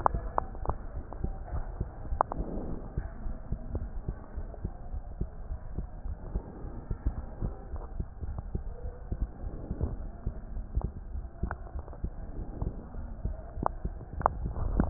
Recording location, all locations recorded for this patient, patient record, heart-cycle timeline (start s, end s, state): aortic valve (AV)
aortic valve (AV)+pulmonary valve (PV)+tricuspid valve (TV)+mitral valve (MV)
#Age: Child
#Sex: Female
#Height: 141.0 cm
#Weight: 35.1 kg
#Pregnancy status: False
#Murmur: Absent
#Murmur locations: nan
#Most audible location: nan
#Systolic murmur timing: nan
#Systolic murmur shape: nan
#Systolic murmur grading: nan
#Systolic murmur pitch: nan
#Systolic murmur quality: nan
#Diastolic murmur timing: nan
#Diastolic murmur shape: nan
#Diastolic murmur grading: nan
#Diastolic murmur pitch: nan
#Diastolic murmur quality: nan
#Outcome: Abnormal
#Campaign: 2015 screening campaign
0.00	4.16	unannotated
4.16	4.34	diastole
4.34	4.48	S1
4.48	4.62	systole
4.62	4.72	S2
4.72	4.90	diastole
4.90	5.04	S1
5.04	5.18	systole
5.18	5.28	S2
5.28	5.48	diastole
5.48	5.58	S1
5.58	5.76	systole
5.76	5.88	S2
5.88	6.06	diastole
6.06	6.16	S1
6.16	6.34	systole
6.34	6.44	S2
6.44	6.62	diastole
6.62	6.71	S1
6.71	6.87	systole
6.87	6.95	S2
6.95	7.14	diastole
7.14	7.24	S1
7.24	7.40	systole
7.40	7.51	S2
7.51	7.72	diastole
7.72	7.84	S1
7.84	7.98	systole
7.98	8.08	S2
8.08	8.24	diastole
8.24	8.36	S1
8.36	8.52	systole
8.52	8.59	S2
8.59	8.82	diastole
8.82	8.92	S1
8.92	9.10	systole
9.10	9.20	S2
9.20	9.42	diastole
9.42	9.54	S1
9.54	9.69	systole
9.69	9.86	S2
9.86	10.22	diastole
10.22	14.90	unannotated